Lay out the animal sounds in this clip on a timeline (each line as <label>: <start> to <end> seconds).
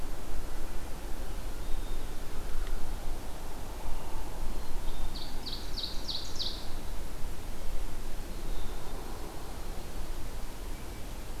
Black-capped Chickadee (Poecile atricapillus): 1.3 to 2.5 seconds
Black-capped Chickadee (Poecile atricapillus): 4.4 to 5.2 seconds
Ovenbird (Seiurus aurocapilla): 5.0 to 6.8 seconds
Black-capped Chickadee (Poecile atricapillus): 8.0 to 9.1 seconds